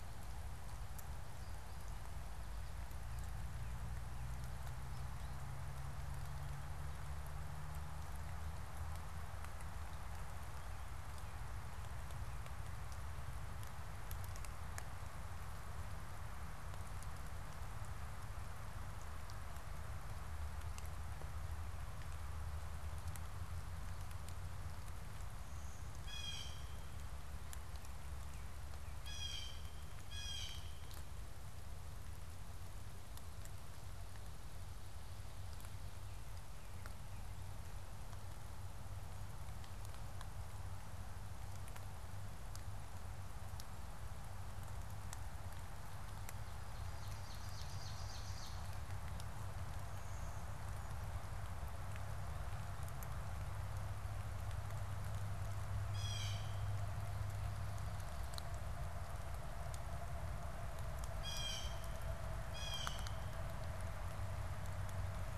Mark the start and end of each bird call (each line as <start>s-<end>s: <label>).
25.8s-26.8s: Blue Jay (Cyanocitta cristata)
28.8s-31.0s: Blue Jay (Cyanocitta cristata)
46.4s-48.9s: Ovenbird (Seiurus aurocapilla)
49.8s-51.1s: Blue-winged Warbler (Vermivora cyanoptera)
55.7s-56.8s: Blue Jay (Cyanocitta cristata)
60.9s-63.7s: Blue Jay (Cyanocitta cristata)